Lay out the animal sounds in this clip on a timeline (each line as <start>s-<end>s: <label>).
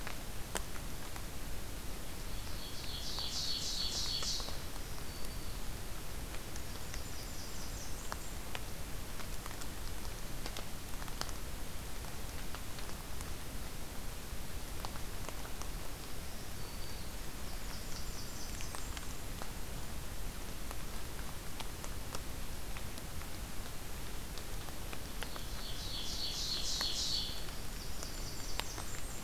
2.1s-4.5s: Ovenbird (Seiurus aurocapilla)
4.4s-5.6s: Black-throated Green Warbler (Setophaga virens)
6.5s-8.4s: Blackburnian Warbler (Setophaga fusca)
15.8s-17.0s: Black-throated Green Warbler (Setophaga virens)
17.2s-19.2s: Blackburnian Warbler (Setophaga fusca)
25.2s-27.4s: Ovenbird (Seiurus aurocapilla)
27.5s-29.2s: Blackburnian Warbler (Setophaga fusca)